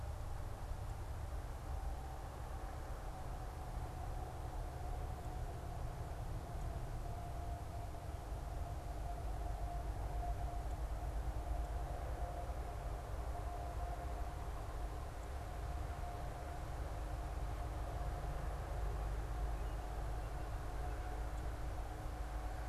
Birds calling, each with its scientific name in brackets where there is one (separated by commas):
American Robin (Turdus migratorius)